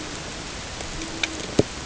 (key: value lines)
label: ambient
recorder: HydroMoth